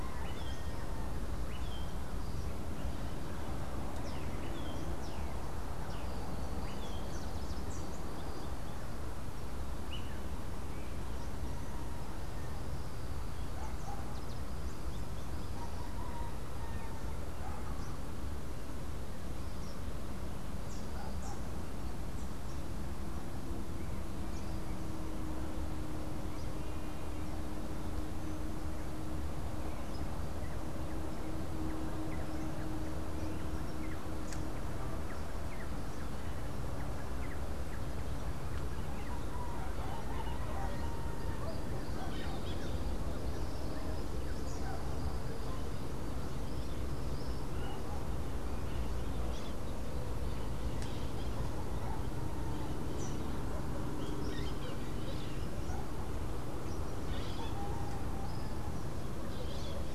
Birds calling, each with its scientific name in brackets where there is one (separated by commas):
Melodious Blackbird (Dives dives), Squirrel Cuckoo (Piaya cayana), Crimson-fronted Parakeet (Psittacara finschi)